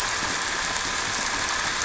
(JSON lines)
{"label": "anthrophony, boat engine", "recorder": "SoundTrap 300"}